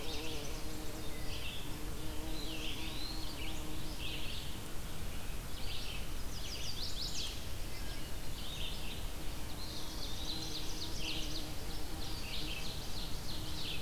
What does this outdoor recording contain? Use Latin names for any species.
Vireo olivaceus, Contopus virens, Setophaga pensylvanica, Seiurus aurocapilla